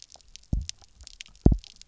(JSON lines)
{"label": "biophony, double pulse", "recorder": "SoundTrap 300"}